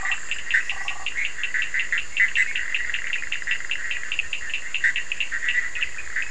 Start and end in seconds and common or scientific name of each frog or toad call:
0.0	1.5	Burmeister's tree frog
0.0	6.3	Bischoff's tree frog
0.0	6.3	Cochran's lime tree frog